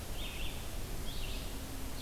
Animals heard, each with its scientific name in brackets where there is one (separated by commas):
Red-eyed Vireo (Vireo olivaceus)